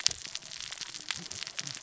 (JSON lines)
{"label": "biophony, cascading saw", "recorder": "SoundTrap 600 or HydroMoth"}